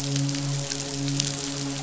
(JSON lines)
{"label": "biophony, midshipman", "recorder": "SoundTrap 500"}